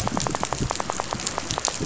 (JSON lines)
{"label": "biophony, rattle", "recorder": "SoundTrap 500"}